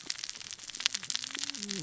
{"label": "biophony, cascading saw", "recorder": "SoundTrap 600 or HydroMoth"}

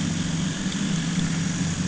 {"label": "anthrophony, boat engine", "recorder": "HydroMoth"}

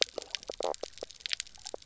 {"label": "biophony, knock croak", "recorder": "SoundTrap 300"}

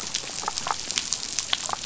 {"label": "biophony, damselfish", "recorder": "SoundTrap 500"}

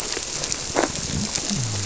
{"label": "biophony", "recorder": "SoundTrap 300"}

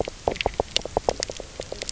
{"label": "biophony, knock croak", "recorder": "SoundTrap 300"}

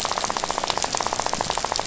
{"label": "biophony, rattle", "recorder": "SoundTrap 500"}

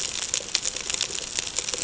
{"label": "ambient", "recorder": "HydroMoth"}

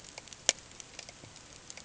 {"label": "ambient", "recorder": "HydroMoth"}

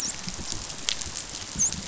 {"label": "biophony, dolphin", "recorder": "SoundTrap 500"}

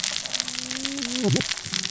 {"label": "biophony, cascading saw", "recorder": "SoundTrap 600 or HydroMoth"}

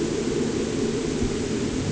{"label": "anthrophony, boat engine", "recorder": "HydroMoth"}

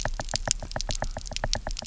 {"label": "biophony, knock", "recorder": "SoundTrap 300"}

